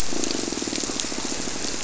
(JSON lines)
{"label": "biophony, squirrelfish (Holocentrus)", "recorder": "SoundTrap 300"}